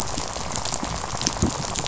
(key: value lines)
label: biophony, rattle
recorder: SoundTrap 500